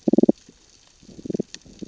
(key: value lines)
label: biophony, damselfish
recorder: SoundTrap 600 or HydroMoth